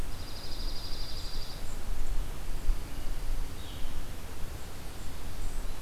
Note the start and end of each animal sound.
[0.00, 1.64] Dark-eyed Junco (Junco hyemalis)
[2.38, 3.90] Dark-eyed Junco (Junco hyemalis)
[3.50, 4.12] Red-eyed Vireo (Vireo olivaceus)

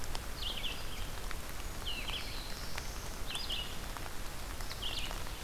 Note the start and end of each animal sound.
[0.00, 5.44] Red-eyed Vireo (Vireo olivaceus)
[1.69, 3.29] Black-throated Blue Warbler (Setophaga caerulescens)

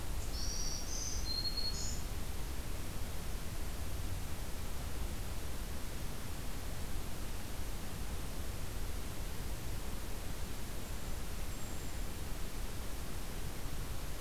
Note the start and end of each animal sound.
[0.27, 2.17] Black-throated Green Warbler (Setophaga virens)

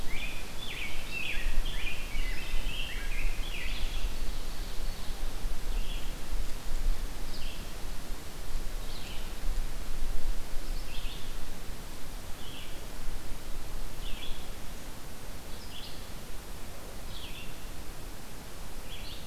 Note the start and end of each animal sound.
[0.04, 4.08] Rose-breasted Grosbeak (Pheucticus ludovicianus)
[3.54, 5.23] Ovenbird (Seiurus aurocapilla)
[5.59, 19.27] Red-eyed Vireo (Vireo olivaceus)

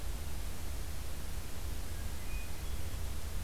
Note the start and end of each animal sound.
[1.74, 3.01] Hermit Thrush (Catharus guttatus)

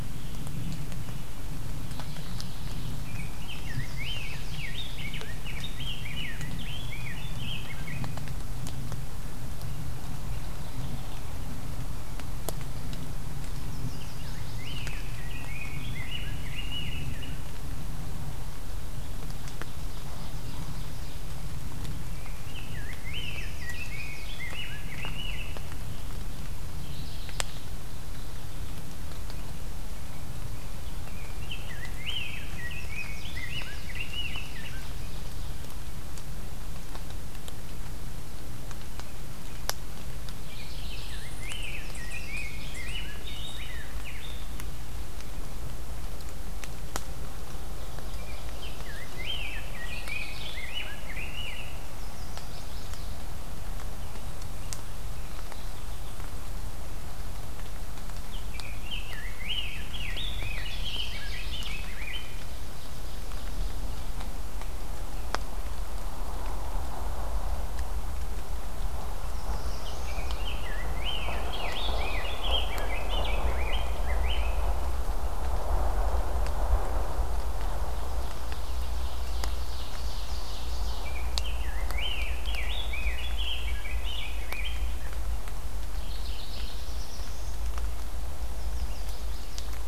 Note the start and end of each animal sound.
[1.82, 3.04] Mourning Warbler (Geothlypis philadelphia)
[3.00, 8.00] Rose-breasted Grosbeak (Pheucticus ludovicianus)
[3.28, 4.69] Chestnut-sided Warbler (Setophaga pensylvanica)
[13.60, 14.87] Chestnut-sided Warbler (Setophaga pensylvanica)
[14.49, 17.29] Rose-breasted Grosbeak (Pheucticus ludovicianus)
[18.79, 21.53] Ovenbird (Seiurus aurocapilla)
[22.28, 25.53] Rose-breasted Grosbeak (Pheucticus ludovicianus)
[23.04, 24.39] Chestnut-sided Warbler (Setophaga pensylvanica)
[26.60, 27.78] Mourning Warbler (Geothlypis philadelphia)
[30.90, 34.88] Rose-breasted Grosbeak (Pheucticus ludovicianus)
[32.69, 34.04] Chestnut-sided Warbler (Setophaga pensylvanica)
[33.78, 35.58] Ovenbird (Seiurus aurocapilla)
[40.42, 41.23] Mourning Warbler (Geothlypis philadelphia)
[40.95, 44.71] Rose-breasted Grosbeak (Pheucticus ludovicianus)
[41.74, 43.03] Chestnut-sided Warbler (Setophaga pensylvanica)
[47.45, 49.39] Ovenbird (Seiurus aurocapilla)
[48.12, 51.80] Rose-breasted Grosbeak (Pheucticus ludovicianus)
[49.70, 50.73] Mourning Warbler (Geothlypis philadelphia)
[51.97, 53.15] Chestnut-sided Warbler (Setophaga pensylvanica)
[55.00, 56.23] Mourning Warbler (Geothlypis philadelphia)
[58.31, 62.44] Rose-breasted Grosbeak (Pheucticus ludovicianus)
[60.02, 61.92] Ovenbird (Seiurus aurocapilla)
[62.17, 64.12] Ovenbird (Seiurus aurocapilla)
[69.06, 70.40] Black-throated Blue Warbler (Setophaga caerulescens)
[69.69, 74.63] Rose-breasted Grosbeak (Pheucticus ludovicianus)
[71.36, 72.44] Mourning Warbler (Geothlypis philadelphia)
[77.62, 81.06] Ovenbird (Seiurus aurocapilla)
[80.91, 84.90] Rose-breasted Grosbeak (Pheucticus ludovicianus)
[85.96, 86.78] Mourning Warbler (Geothlypis philadelphia)
[86.40, 87.65] Black-throated Blue Warbler (Setophaga caerulescens)
[88.45, 89.85] Chestnut-sided Warbler (Setophaga pensylvanica)

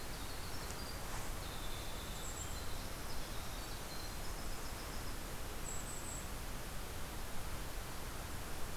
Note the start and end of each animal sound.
[0.00, 5.15] Winter Wren (Troglodytes hiemalis)
[1.82, 2.67] Golden-crowned Kinglet (Regulus satrapa)
[5.52, 6.32] Golden-crowned Kinglet (Regulus satrapa)

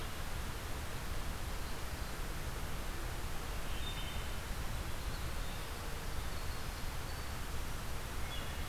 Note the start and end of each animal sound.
[3.60, 4.44] Wood Thrush (Hylocichla mustelina)
[4.28, 7.43] Winter Wren (Troglodytes hiemalis)
[8.04, 8.68] Wood Thrush (Hylocichla mustelina)

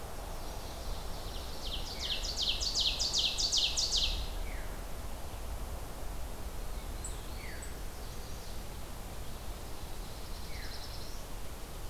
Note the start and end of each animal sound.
[0.17, 4.32] Ovenbird (Seiurus aurocapilla)
[1.78, 2.31] Veery (Catharus fuscescens)
[4.37, 4.88] Veery (Catharus fuscescens)
[6.42, 7.85] Black-throated Blue Warbler (Setophaga caerulescens)
[7.31, 7.74] Veery (Catharus fuscescens)
[7.83, 8.62] Chestnut-sided Warbler (Setophaga pensylvanica)
[9.28, 11.37] Black-throated Blue Warbler (Setophaga caerulescens)
[10.37, 10.92] Veery (Catharus fuscescens)

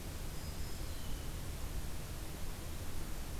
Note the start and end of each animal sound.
[0.08, 1.12] Black-throated Green Warbler (Setophaga virens)
[0.79, 1.33] Red-winged Blackbird (Agelaius phoeniceus)

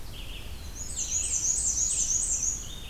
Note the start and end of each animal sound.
[0.00, 2.90] Red-eyed Vireo (Vireo olivaceus)
[0.28, 2.22] Black-throated Blue Warbler (Setophaga caerulescens)
[0.61, 2.72] Black-and-white Warbler (Mniotilta varia)

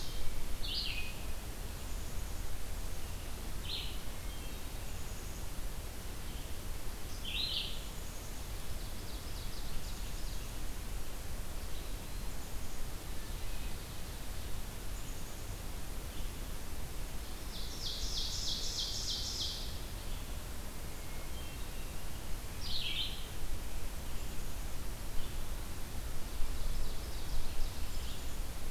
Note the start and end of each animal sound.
[0.00, 7.91] Red-eyed Vireo (Vireo olivaceus)
[1.61, 2.84] Black-capped Chickadee (Poecile atricapillus)
[3.77, 4.84] Hermit Thrush (Catharus guttatus)
[4.69, 5.67] Black-capped Chickadee (Poecile atricapillus)
[7.52, 8.51] Black-capped Chickadee (Poecile atricapillus)
[8.64, 10.91] Ovenbird (Seiurus aurocapilla)
[11.85, 12.94] Black-capped Chickadee (Poecile atricapillus)
[14.81, 15.64] Black-capped Chickadee (Poecile atricapillus)
[17.38, 20.17] Ovenbird (Seiurus aurocapilla)
[20.79, 22.49] Hermit Thrush (Catharus guttatus)
[22.47, 23.34] Red-eyed Vireo (Vireo olivaceus)
[26.38, 28.55] Ovenbird (Seiurus aurocapilla)

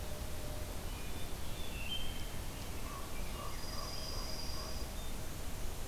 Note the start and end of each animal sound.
[0.72, 2.58] Wood Thrush (Hylocichla mustelina)
[2.56, 4.35] American Robin (Turdus migratorius)
[2.75, 4.74] Common Raven (Corvus corax)
[3.39, 4.98] Dark-eyed Junco (Junco hyemalis)

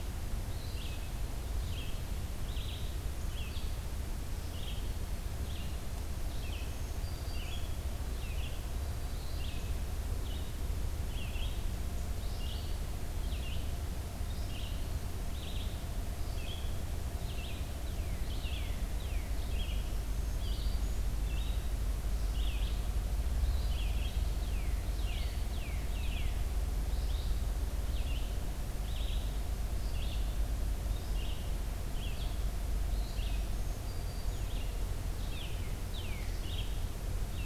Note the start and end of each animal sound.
[0.52, 37.45] Red-eyed Vireo (Vireo olivaceus)
[6.27, 7.74] Black-throated Green Warbler (Setophaga virens)
[17.71, 19.41] Northern Cardinal (Cardinalis cardinalis)
[19.76, 21.07] Black-throated Green Warbler (Setophaga virens)
[24.33, 26.35] Northern Cardinal (Cardinalis cardinalis)
[33.20, 34.56] Black-throated Green Warbler (Setophaga virens)
[35.31, 36.41] Northern Cardinal (Cardinalis cardinalis)

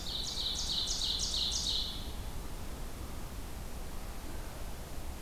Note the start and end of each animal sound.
[0.00, 2.01] Ovenbird (Seiurus aurocapilla)

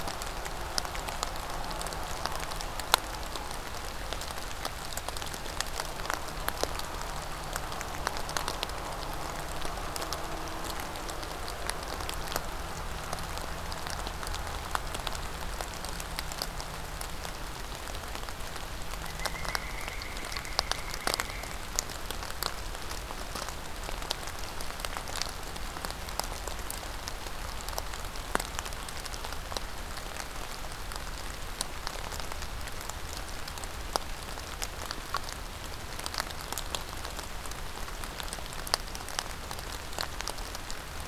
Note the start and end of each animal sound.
[18.75, 21.65] Pileated Woodpecker (Dryocopus pileatus)

